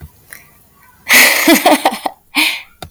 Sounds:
Laughter